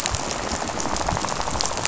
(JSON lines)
{"label": "biophony, rattle", "recorder": "SoundTrap 500"}